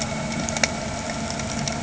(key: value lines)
label: anthrophony, boat engine
recorder: HydroMoth